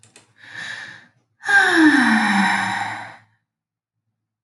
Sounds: Sigh